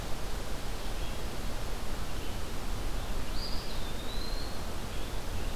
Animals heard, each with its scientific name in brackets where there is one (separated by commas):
Eastern Wood-Pewee (Contopus virens), Red-eyed Vireo (Vireo olivaceus)